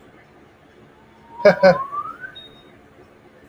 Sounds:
Laughter